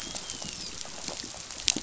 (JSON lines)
{"label": "biophony, dolphin", "recorder": "SoundTrap 500"}